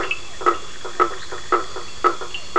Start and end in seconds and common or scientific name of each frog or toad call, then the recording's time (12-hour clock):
0.0	2.5	blacksmith tree frog
0.0	2.5	two-colored oval frog
0.0	2.5	Cochran's lime tree frog
0.4	1.9	Bischoff's tree frog
9:30pm